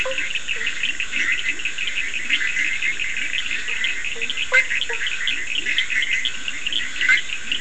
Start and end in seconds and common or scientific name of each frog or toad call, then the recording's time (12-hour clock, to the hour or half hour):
0.0	0.7	blacksmith tree frog
0.0	7.6	Bischoff's tree frog
0.0	7.6	Leptodactylus latrans
0.0	7.6	Scinax perereca
0.0	7.6	Cochran's lime tree frog
3.9	5.4	blacksmith tree frog
3:30am